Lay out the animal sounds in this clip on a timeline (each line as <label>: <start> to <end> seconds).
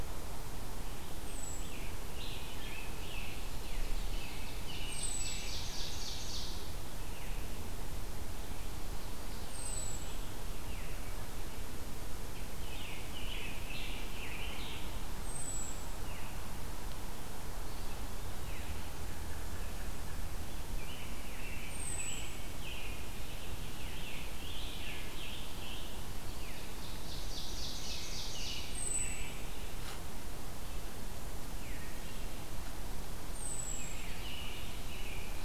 Wood Thrush (Hylocichla mustelina): 1.0 to 2.0 seconds
Scarlet Tanager (Piranga olivacea): 1.5 to 3.4 seconds
Ovenbird (Seiurus aurocapilla): 3.6 to 6.5 seconds
Wood Thrush (Hylocichla mustelina): 4.8 to 5.5 seconds
Wood Thrush (Hylocichla mustelina): 9.4 to 10.3 seconds
Scarlet Tanager (Piranga olivacea): 12.3 to 14.8 seconds
Wood Thrush (Hylocichla mustelina): 15.1 to 16.0 seconds
American Robin (Turdus migratorius): 20.7 to 23.1 seconds
Wood Thrush (Hylocichla mustelina): 21.6 to 22.5 seconds
Scarlet Tanager (Piranga olivacea): 23.6 to 26.0 seconds
Ovenbird (Seiurus aurocapilla): 26.3 to 28.9 seconds
American Robin (Turdus migratorius): 27.7 to 29.5 seconds
Wood Thrush (Hylocichla mustelina): 28.6 to 29.5 seconds
Wood Thrush (Hylocichla mustelina): 33.3 to 34.2 seconds
American Robin (Turdus migratorius): 33.7 to 35.4 seconds